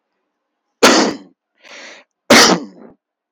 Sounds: Cough